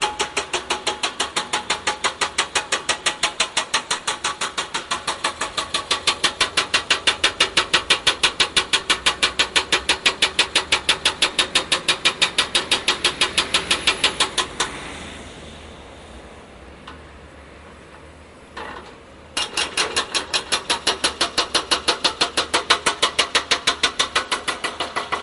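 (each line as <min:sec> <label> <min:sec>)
0:00.0 Cars moving past with a muffled hum in the distance. 0:25.2
0:00.1 A plate compactor runs with a loud, steady drone. 0:14.8
0:18.4 A plate compactor runs with a loud, steady drone. 0:25.2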